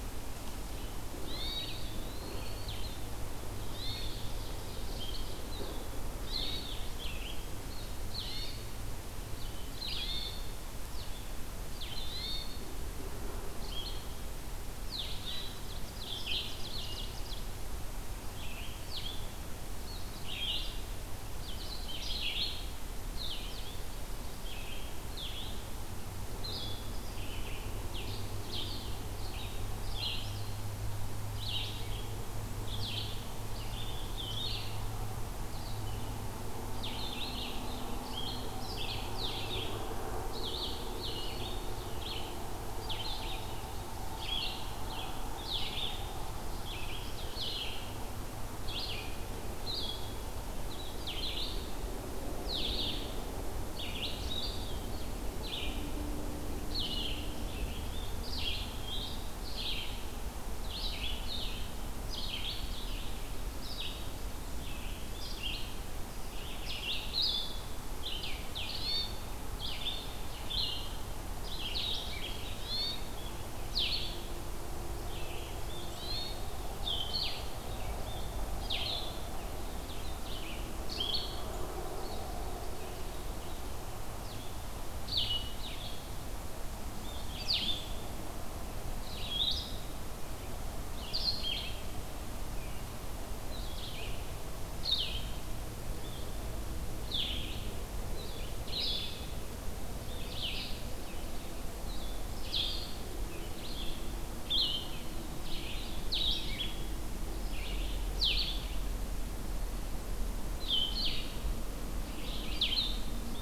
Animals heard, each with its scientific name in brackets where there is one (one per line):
Blue-headed Vireo (Vireo solitarius)
Red-eyed Vireo (Vireo olivaceus)
Blackburnian Warbler (Setophaga fusca)
Ovenbird (Seiurus aurocapilla)
Eastern Wood-Pewee (Contopus virens)
Hermit Thrush (Catharus guttatus)